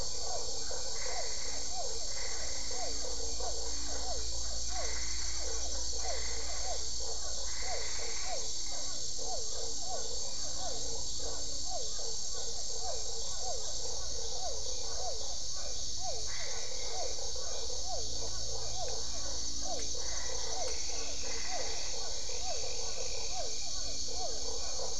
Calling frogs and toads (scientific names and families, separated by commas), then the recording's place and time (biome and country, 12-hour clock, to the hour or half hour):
Boana albopunctata (Hylidae), Boana lundii (Hylidae), Physalaemus cuvieri (Leptodactylidae), Dendropsophus cruzi (Hylidae)
Cerrado, Brazil, 7pm